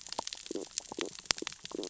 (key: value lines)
label: biophony, stridulation
recorder: SoundTrap 600 or HydroMoth